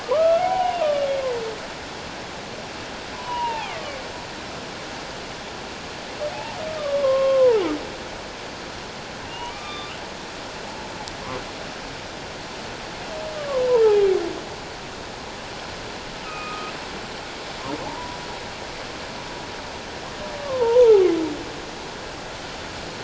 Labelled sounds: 0.0	0.9	humpback whale, 0.78 to 3.0 kHz
3.1	4.0	humpback whale, 0.78 to 3.7 kHz
6.3	7.6	humpback whale, 0.78 to 1.2 kHz
9.3	10.0	humpback whale, 1.1 to 3.7 kHz
13.4	14.2	humpback whale, 0.97 to 2.5 kHz
16.2	16.7	humpback whale, 1.2 to 2.6 kHz
17.9	18.2	humpback whale, 0.78 to 1.0 kHz
20.4	21.1	humpback whale, 0.78 to 1.2 kHz

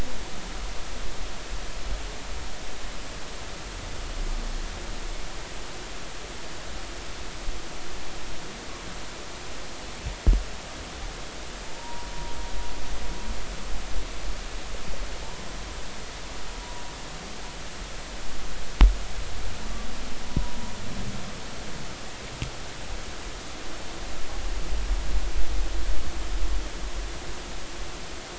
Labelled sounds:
11.8	12.1	humpback whale, 0.90 to 1.0 kHz

